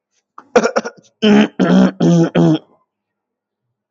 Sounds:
Throat clearing